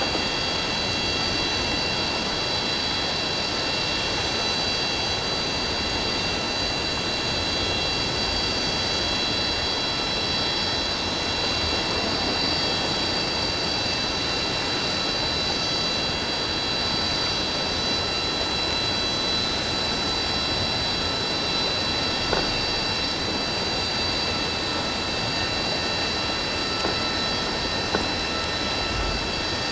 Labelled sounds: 17.2	17.4	vessel noise, 5.8 to 6.0 kHz

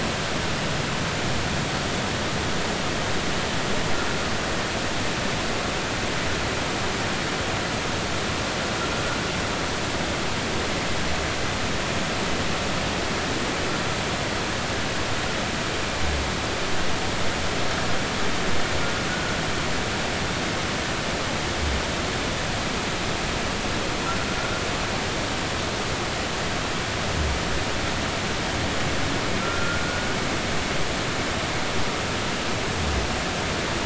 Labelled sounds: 29.4	30.1	humpback whale, 1.3 to 1.5 kHz

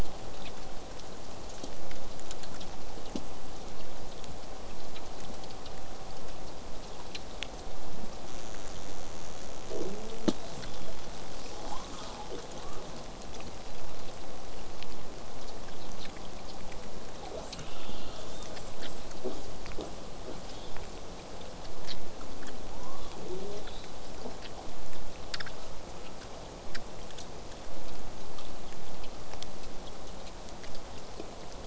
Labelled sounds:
9.7	12.9	killer whale, southern resident, J pod, 0.15 to 8.0 kHz
17.3	20.8	killer whale, southern resident, J pod, 0.15 to 8.0 kHz
22.7	23.3	killer whale, southern resident, J pod, 0.33 to 1.2 kHz

